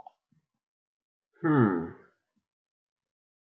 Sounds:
Sigh